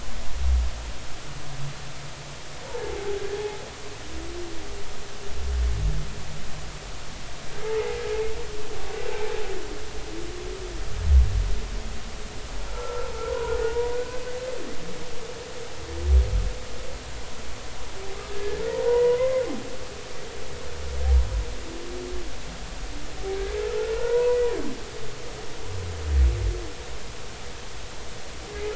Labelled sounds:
2.9	3.1	humpback whale, 0.80 to 0.90 kHz
7.6	8.0	humpback whale, 0.80 to 0.96 kHz
12.7	14.2	humpback whale, 0.83 to 1.6 kHz
18.2	19.4	humpback whale, 0.90 to 2.1 kHz
23.9	24.4	humpback whale, 0.90 to 1.0 kHz

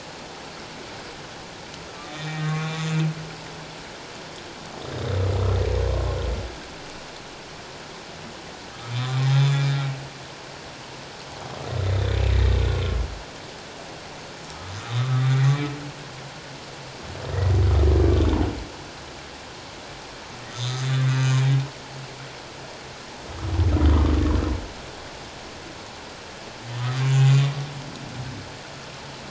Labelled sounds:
2.1	2.9	humpback whale, 1.0 to 3.8 kHz
8.9	9.6	humpback whale, 1.1 to 6.4 kHz
11.9	12.2	humpback whale, 3.4 to 3.7 kHz
14.5	15.5	humpback whale, 1.1 to 3.9 kHz
20.5	21.4	humpback whale, 2.3 to 6.4 kHz
27.0	27.4	humpback whale, 6.8 to 7.2 kHz

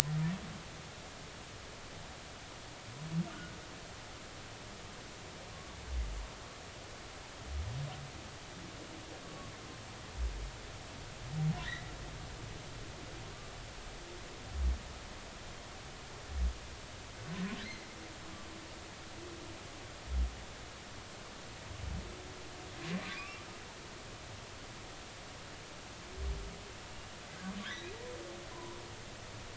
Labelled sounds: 5.5	5.8	humpback whale, 1.1 to 1.2 kHz
9.2	9.5	humpback whale, 1.1 to 1.2 kHz
11.6	11.9	humpback whale, 1.7 to 2.1 kHz
23.0	23.4	humpback whale, 1.1 to 2.8 kHz
27.6	27.9	humpback whale, 1.4 to 4.0 kHz
28.5	28.8	humpback whale, 0.90 to 1.1 kHz

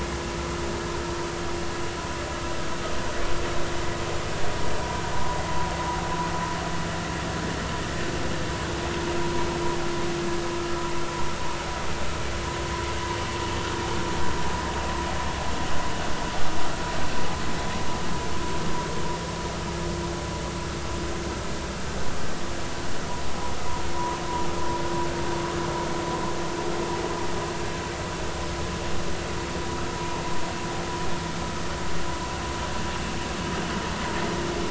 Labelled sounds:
5.1	5.4	vessel noise, 0.90 to 1.1 kHz
23.9	24.2	vessel noise, 0.93 to 1.1 kHz

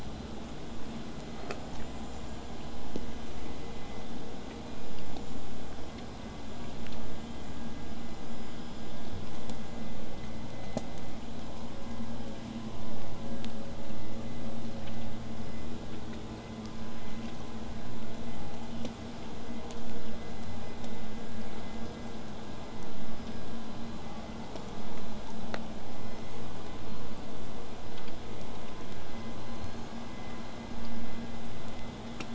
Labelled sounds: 25.9	26.7	killer whale, southern resident, 3.9 to 8.0 kHz
29.4	30.2	killer whale, southern resident, 3.9 to 8.0 kHz

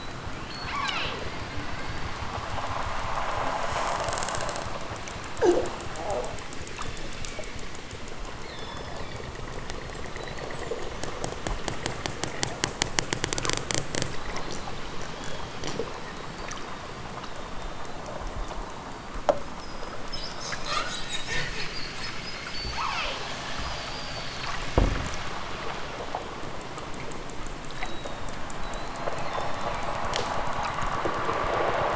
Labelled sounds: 0.5	1.3	killer whale, southern Alaska resident, 0.09 to 6.1 kHz
8.3	9.4	killer whale, southern Alaska resident, 1.9 to 5.9 kHz
22.6	23.4	killer whale, southern Alaska resident, 0.18 to 6.6 kHz
29.3	30.0	killer whale, southern Alaska resident, 2.0 to 5.9 kHz

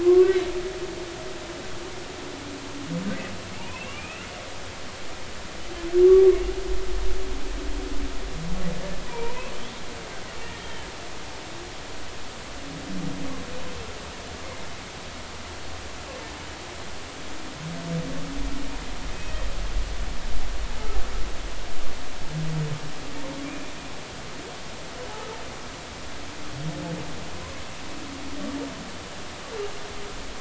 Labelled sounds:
0.0	0.4	humpback whale, 1.0 to 1.2 kHz
3.6	4.3	humpback whale, 2.1 to 3.0 kHz
9.0	9.5	humpback whale, 0.90 to 1.2 kHz
10.6	10.9	humpback whale, 2.9 to 3.3 kHz

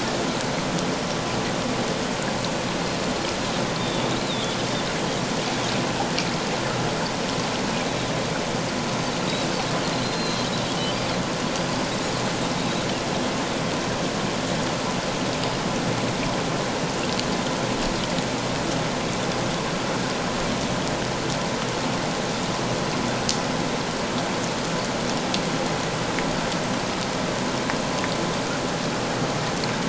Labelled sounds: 3.8	4.6	Pacific white-sided dolphin, 3.2 to 4.2 kHz
9.8	10.5	Pacific white-sided dolphin, 3.8 to 4.3 kHz
11.6	11.9	Pacific white-sided dolphin, 4.6 to 4.9 kHz

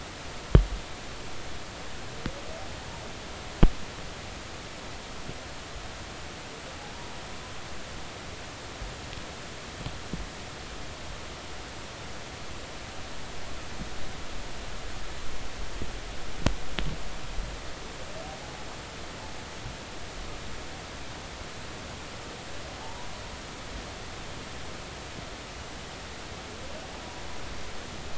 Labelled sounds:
18.4	18.7	humpback whale, 0.80 to 0.90 kHz
22.8	23.1	humpback whale, 0.80 to 1.1 kHz

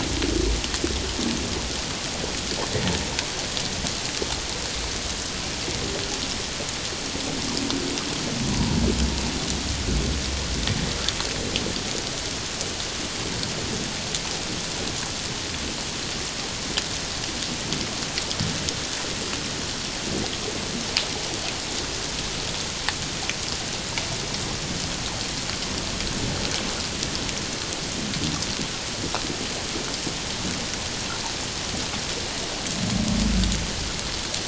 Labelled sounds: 8.5	8.8	humpback whale, 0.91 to 1.0 kHz

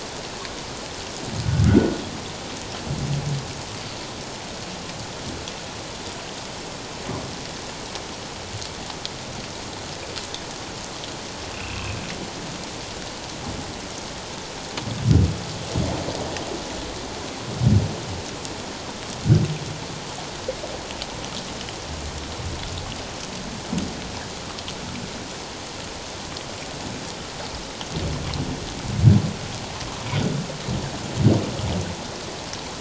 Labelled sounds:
1.6	1.9	humpback whale, 1.2 to 1.5 kHz
11.5	12.0	humpback whale, 2.4 to 2.8 kHz

